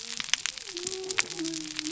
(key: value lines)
label: biophony
recorder: SoundTrap 300